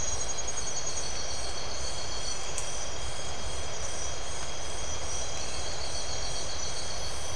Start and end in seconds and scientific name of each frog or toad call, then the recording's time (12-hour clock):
none
12:00am